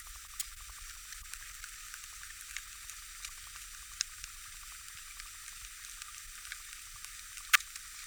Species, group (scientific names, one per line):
Poecilimon jonicus
Orthoptera